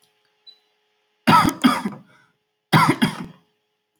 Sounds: Cough